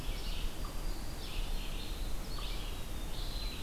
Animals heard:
Black-throated Green Warbler (Setophaga virens), Eastern Wood-Pewee (Contopus virens), Red-eyed Vireo (Vireo olivaceus), unknown mammal

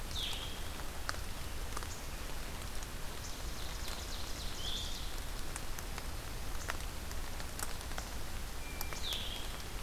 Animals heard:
Ovenbird (Seiurus aurocapilla), Blue-headed Vireo (Vireo solitarius), Hermit Thrush (Catharus guttatus)

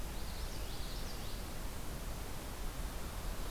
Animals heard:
Common Yellowthroat (Geothlypis trichas)

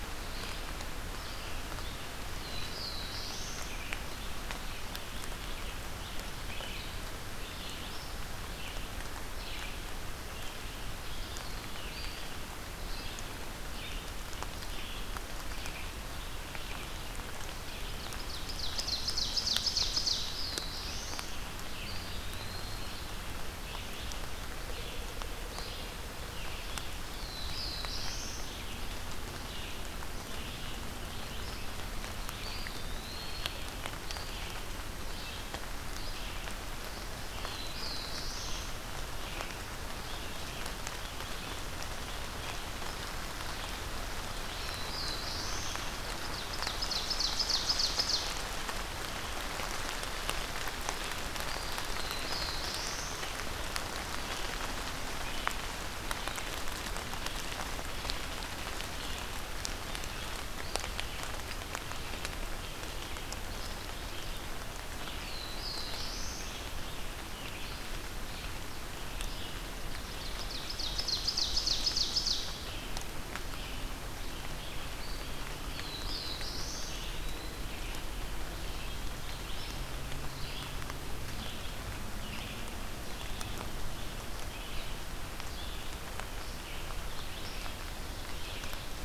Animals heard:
Red-eyed Vireo (Vireo olivaceus), Ovenbird (Seiurus aurocapilla), Black-throated Blue Warbler (Setophaga caerulescens), Eastern Wood-Pewee (Contopus virens)

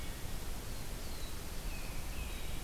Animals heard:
Black-throated Blue Warbler (Setophaga caerulescens), Tufted Titmouse (Baeolophus bicolor)

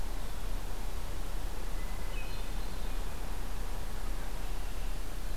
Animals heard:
Hermit Thrush (Catharus guttatus)

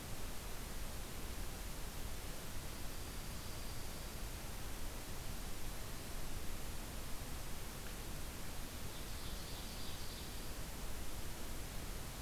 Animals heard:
Dark-eyed Junco (Junco hyemalis), Ovenbird (Seiurus aurocapilla)

